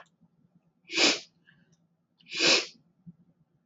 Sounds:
Sniff